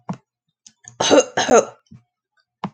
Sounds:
Cough